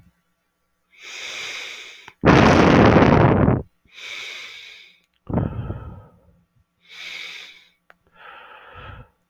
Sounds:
Sigh